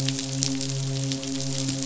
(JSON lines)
{"label": "biophony, midshipman", "recorder": "SoundTrap 500"}